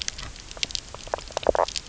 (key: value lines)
label: biophony, knock croak
recorder: SoundTrap 300